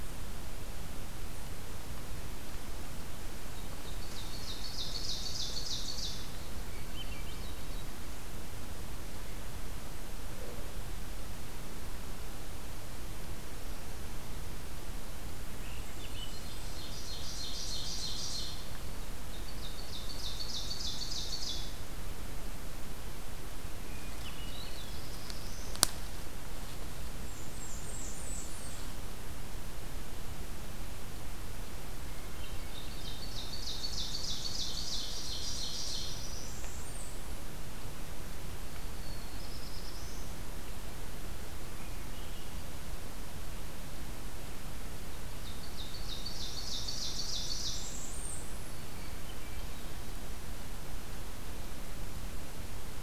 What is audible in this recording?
Ovenbird, Swainson's Thrush, Blackburnian Warbler, Black-throated Blue Warbler, Hermit Thrush